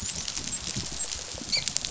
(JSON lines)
{"label": "biophony, dolphin", "recorder": "SoundTrap 500"}